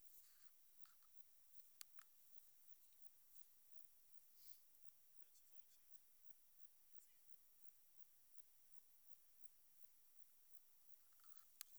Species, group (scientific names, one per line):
Metrioptera saussuriana
Orthoptera